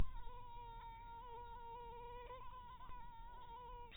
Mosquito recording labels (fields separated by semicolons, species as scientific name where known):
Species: mosquito; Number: one; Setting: cup